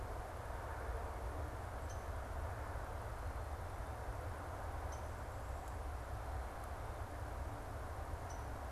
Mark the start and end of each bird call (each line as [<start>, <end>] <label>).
[0.00, 8.66] Downy Woodpecker (Dryobates pubescens)